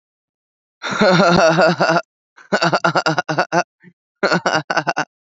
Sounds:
Laughter